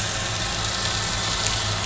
{"label": "anthrophony, boat engine", "recorder": "SoundTrap 500"}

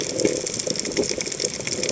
{"label": "biophony", "recorder": "HydroMoth"}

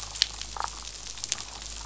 {"label": "biophony, damselfish", "recorder": "SoundTrap 500"}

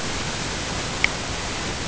{"label": "ambient", "recorder": "HydroMoth"}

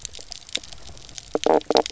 {"label": "biophony, knock croak", "recorder": "SoundTrap 300"}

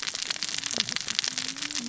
{"label": "biophony, cascading saw", "recorder": "SoundTrap 600 or HydroMoth"}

